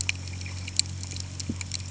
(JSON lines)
{"label": "anthrophony, boat engine", "recorder": "HydroMoth"}